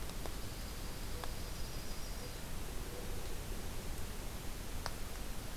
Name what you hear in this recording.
Dark-eyed Junco, Yellow-rumped Warbler